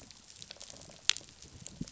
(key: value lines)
label: biophony
recorder: SoundTrap 500